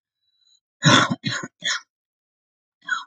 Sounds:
Cough